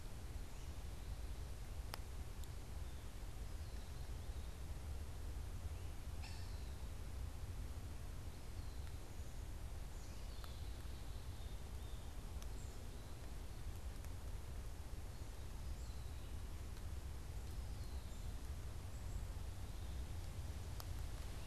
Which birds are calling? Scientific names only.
Accipiter cooperii